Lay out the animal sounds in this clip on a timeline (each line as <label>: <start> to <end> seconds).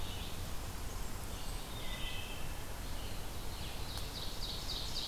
Red-eyed Vireo (Vireo olivaceus): 0.0 to 3.8 seconds
Blackburnian Warbler (Setophaga fusca): 0.4 to 1.9 seconds
Wood Thrush (Hylocichla mustelina): 1.4 to 2.6 seconds
Ovenbird (Seiurus aurocapilla): 3.4 to 5.1 seconds